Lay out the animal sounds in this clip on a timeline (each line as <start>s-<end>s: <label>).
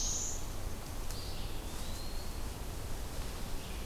0.0s-0.5s: Black-throated Blue Warbler (Setophaga caerulescens)
0.0s-3.9s: Red-eyed Vireo (Vireo olivaceus)
1.0s-2.4s: Eastern Wood-Pewee (Contopus virens)